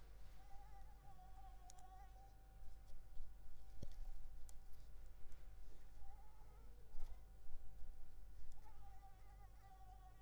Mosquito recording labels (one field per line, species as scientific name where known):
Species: Anopheles arabiensis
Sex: female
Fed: unfed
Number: one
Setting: cup